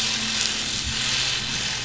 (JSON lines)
{"label": "anthrophony, boat engine", "recorder": "SoundTrap 500"}